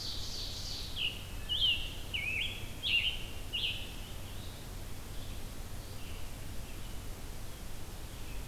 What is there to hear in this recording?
Ovenbird, Scarlet Tanager, Red-eyed Vireo